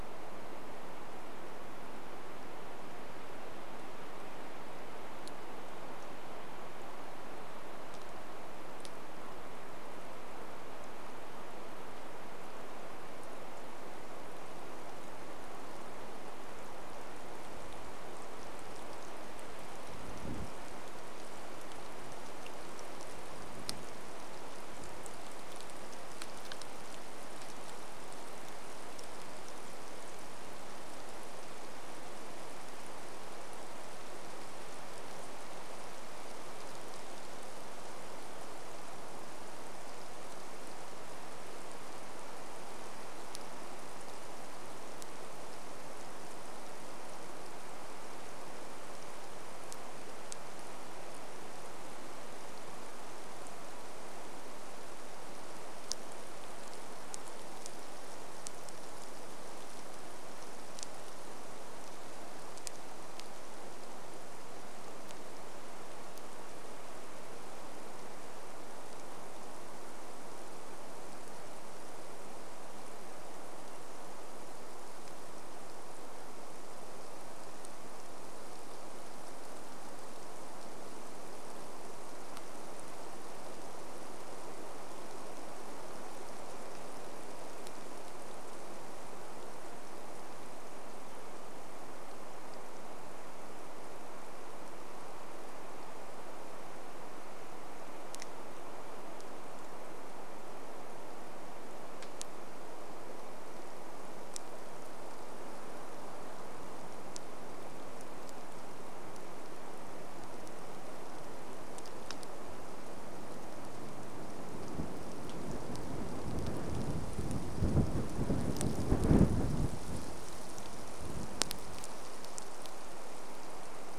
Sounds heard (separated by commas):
rain